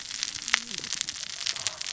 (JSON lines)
{"label": "biophony, cascading saw", "recorder": "SoundTrap 600 or HydroMoth"}